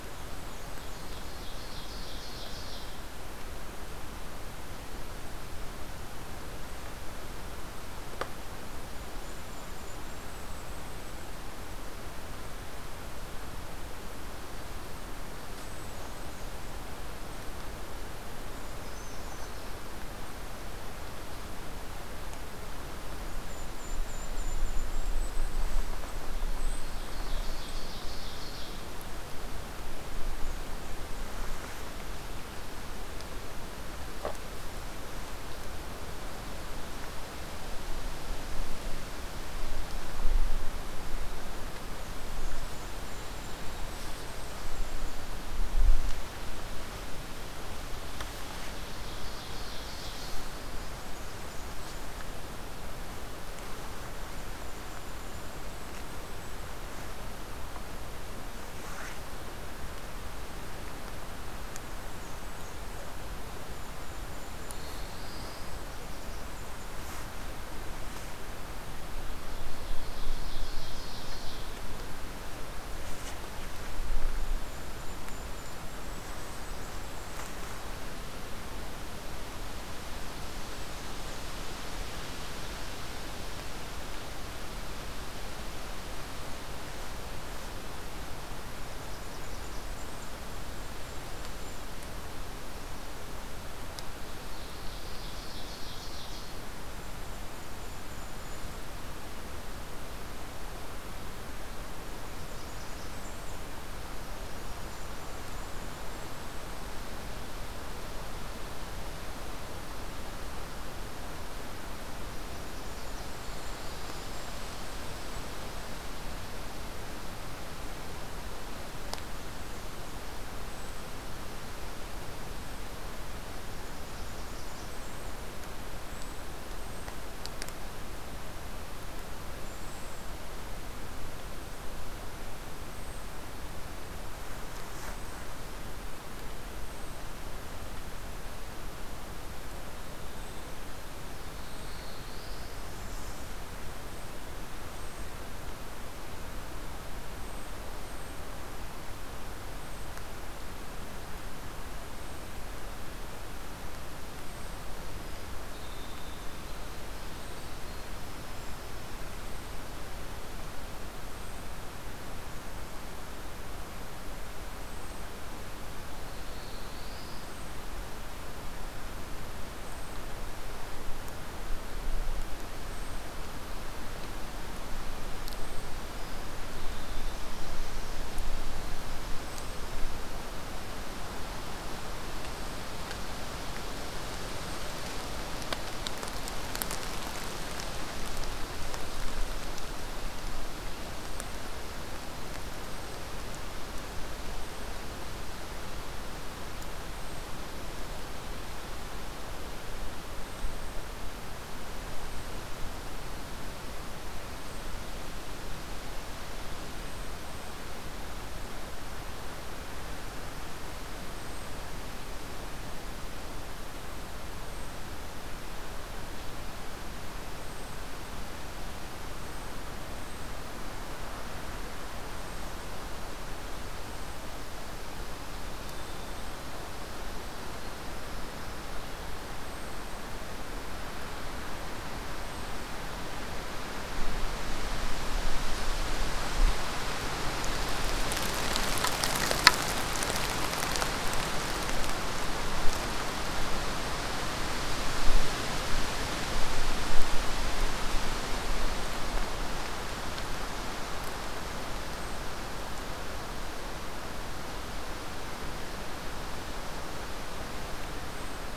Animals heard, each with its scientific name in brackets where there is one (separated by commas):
Golden-crowned Kinglet (Regulus satrapa), Black-throated Blue Warbler (Setophaga caerulescens), unidentified call, Ovenbird (Seiurus aurocapilla), Brown Creeper (Certhia americana), Winter Wren (Troglodytes hiemalis), Blackburnian Warbler (Setophaga fusca)